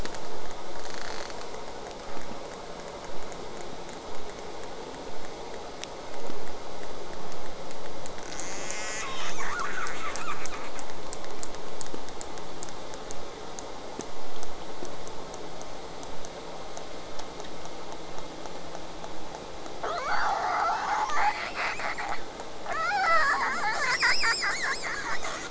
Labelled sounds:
0.8	1.3	killer whale, southern resident, J pod, rasp, 0.35 to 8.0 kHz
8.2	10.7	killer whale, southern resident, J pod, call S10, 0.73 to 8.0 kHz
19.8	22.2	killer whale, southern resident, J pod, 0.23 to 8.0 kHz
22.7	25.4	killer whale, southern resident, J pod, 0.31 to 8.0 kHz

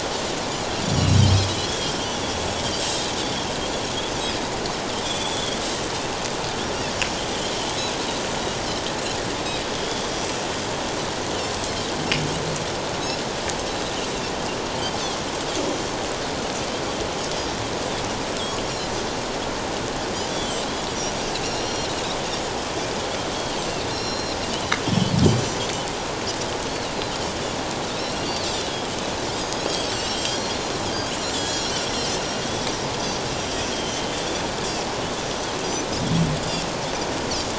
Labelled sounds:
0.8	2.1	Pacific white-sided dolphin, 3.0 to 5.9 kHz
5.0	5.6	Pacific white-sided dolphin, 3.1 to 3.7 kHz
9.7	10.4	Pacific white-sided dolphin, 3.2 to 6.1 kHz
20.3	20.7	Pacific white-sided dolphin, 2.9 to 3.5 kHz
21.4	21.9	Pacific white-sided dolphin, 2.6 to 7.2 kHz
23.9	24.4	Pacific white-sided dolphin, 2.7 to 5.8 kHz
24.9	25.1	Pacific white-sided dolphin, 3.1 to 3.5 kHz
28.0	28.4	Pacific white-sided dolphin, 2.8 to 5.7 kHz
29.3	30.6	Pacific white-sided dolphin, 2.8 to 7.8 kHz
31.2	32.7	Pacific white-sided dolphin, 2.9 to 7.5 kHz
33.7	34.1	Pacific white-sided dolphin, 3.0 to 3.3 kHz

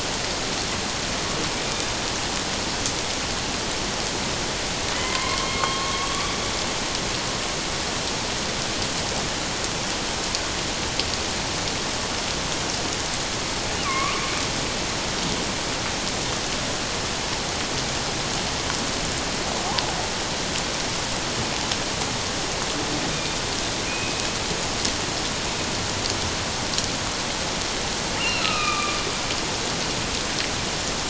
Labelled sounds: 4.9	6.4	killer whale, northern resident, A clan, AA subclan, 0.97 to 3.5 kHz
13.8	14.2	killer whale, northern resident, A clan, AA subclan, 1.0 to 2.6 kHz
23.9	24.3	killer whale, northern resident, A clan, AA subclan, 2.4 to 2.6 kHz
28.2	29.0	killer whale, northern resident, A clan, AA subclan, 1.1 to 2.9 kHz

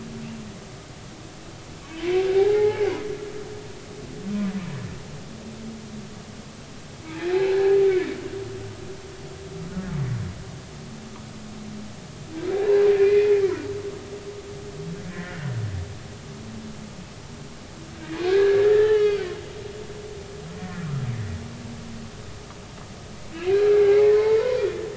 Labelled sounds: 2.3	2.9	humpback whale, 0.80 to 2.2 kHz
7.0	7.8	humpback whale, 1.5 to 4.2 kHz
9.7	9.9	humpback whale, 1.4 to 1.5 kHz
13.0	13.4	humpback whale, 1.8 to 2.5 kHz
15.1	15.5	humpback whale, 1.7 to 2.1 kHz
18.2	19.3	humpback whale, 1.2 to 4.7 kHz
20.6	20.8	humpback whale, 1.7 to 1.9 kHz
23.3	24.8	humpback whale, 2.1 to 3.6 kHz

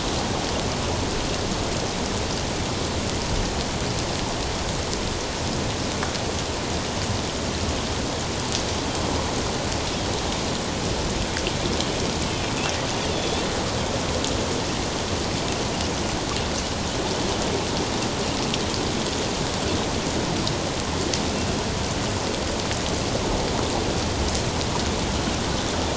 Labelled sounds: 13.1	13.4	Pacific white-sided dolphin, 3.3 to 3.6 kHz

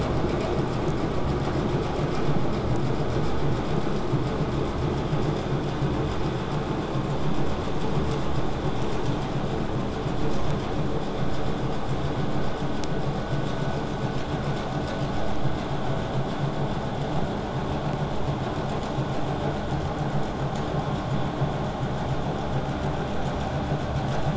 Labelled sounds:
17.1	22.1	vessel noise, 0 to 8.0 kHz

